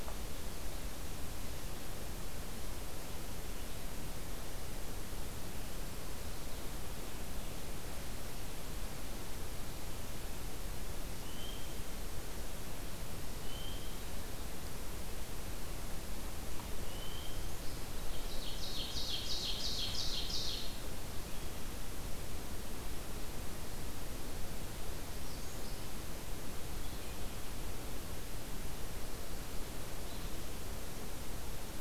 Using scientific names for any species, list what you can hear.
Seiurus aurocapilla, Setophaga magnolia